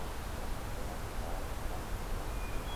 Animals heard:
forest ambience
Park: Marsh-Billings-Rockefeller National Historical Park